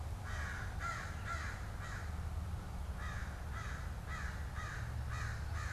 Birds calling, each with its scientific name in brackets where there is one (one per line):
American Crow (Corvus brachyrhynchos)